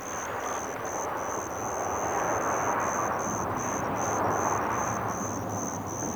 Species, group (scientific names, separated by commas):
Natula averni, Orthoptera